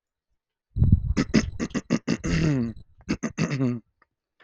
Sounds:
Throat clearing